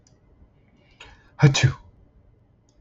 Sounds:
Sneeze